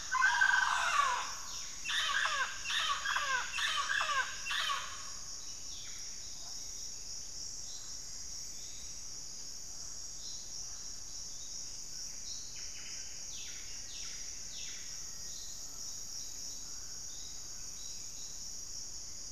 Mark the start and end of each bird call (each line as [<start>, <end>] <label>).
[0.00, 19.31] Mealy Parrot (Amazona farinosa)
[0.96, 6.56] Buff-breasted Wren (Cantorchilus leucotis)
[7.16, 9.16] Plumbeous Antbird (Myrmelastes hyperythrus)
[12.16, 15.46] Buff-breasted Wren (Cantorchilus leucotis)
[13.36, 15.86] Black-faced Antthrush (Formicarius analis)
[16.96, 19.31] White-rumped Sirystes (Sirystes albocinereus)